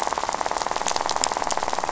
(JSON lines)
{"label": "biophony, rattle", "recorder": "SoundTrap 500"}